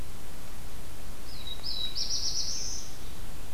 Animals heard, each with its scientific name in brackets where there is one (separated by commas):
Black-throated Blue Warbler (Setophaga caerulescens)